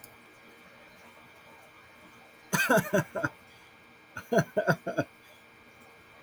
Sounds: Laughter